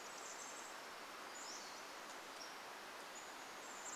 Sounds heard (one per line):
Pacific-slope Flycatcher song
Chestnut-backed Chickadee call